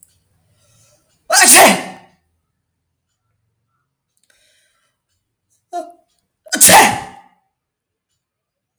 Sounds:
Sneeze